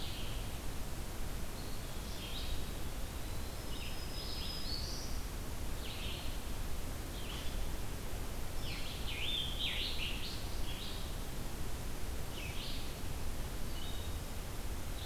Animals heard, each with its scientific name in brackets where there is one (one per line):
Black-throated Green Warbler (Setophaga virens)
Blue-headed Vireo (Vireo solitarius)
Scarlet Tanager (Piranga olivacea)
Eastern Wood-Pewee (Contopus virens)